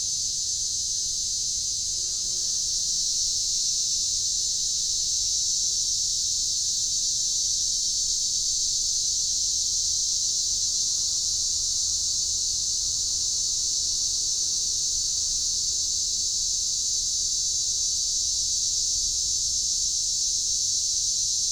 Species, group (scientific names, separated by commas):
Chremistica ochracea, Cicadidae